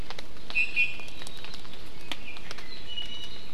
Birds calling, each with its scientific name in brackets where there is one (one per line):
Iiwi (Drepanis coccinea)